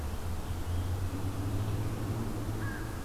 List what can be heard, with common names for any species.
American Crow